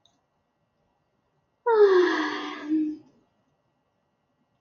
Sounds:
Sigh